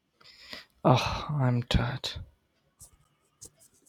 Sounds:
Sigh